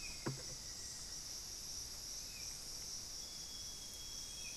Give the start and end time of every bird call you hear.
0.0s-1.4s: Black-faced Antthrush (Formicarius analis)
0.0s-4.6s: Hauxwell's Thrush (Turdus hauxwelli)
3.0s-4.6s: Amazonian Grosbeak (Cyanoloxia rothschildii)

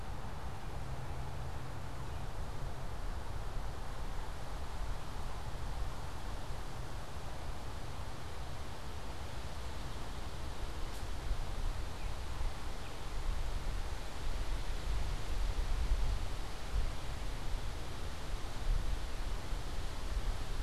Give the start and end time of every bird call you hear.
11.9s-13.0s: Baltimore Oriole (Icterus galbula)

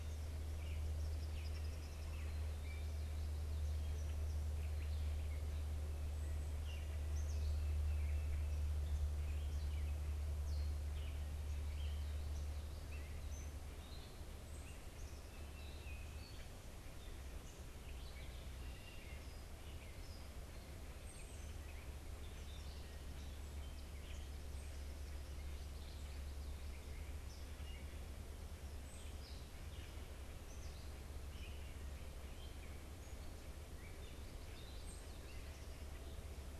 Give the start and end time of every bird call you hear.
0.0s-36.6s: Gray Catbird (Dumetella carolinensis)
1.1s-2.1s: Eastern Kingbird (Tyrannus tyrannus)
15.4s-16.1s: Tufted Titmouse (Baeolophus bicolor)
18.5s-19.4s: Red-winged Blackbird (Agelaius phoeniceus)

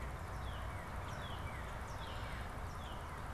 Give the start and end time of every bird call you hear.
0.0s-3.3s: Northern Cardinal (Cardinalis cardinalis)

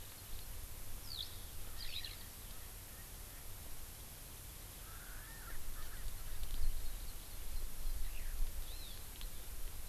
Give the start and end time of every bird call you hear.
1.0s-1.3s: Eurasian Skylark (Alauda arvensis)
1.6s-3.5s: Erckel's Francolin (Pternistis erckelii)
1.8s-2.2s: Eurasian Skylark (Alauda arvensis)
4.9s-6.1s: Erckel's Francolin (Pternistis erckelii)
8.7s-9.0s: Hawaii Amakihi (Chlorodrepanis virens)

